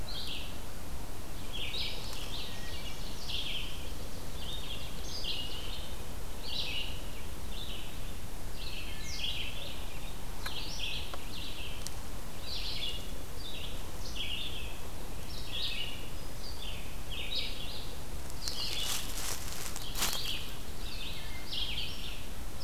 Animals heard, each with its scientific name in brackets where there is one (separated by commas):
Wood Thrush (Hylocichla mustelina), Red-eyed Vireo (Vireo olivaceus)